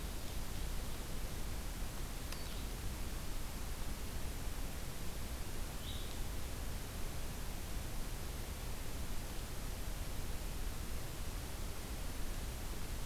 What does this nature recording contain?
Blue-headed Vireo